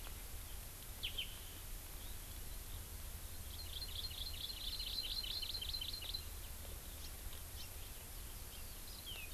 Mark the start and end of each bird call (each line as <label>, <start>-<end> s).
Hawaii Amakihi (Chlorodrepanis virens), 3.5-6.3 s